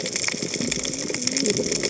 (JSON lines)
{"label": "biophony, cascading saw", "recorder": "HydroMoth"}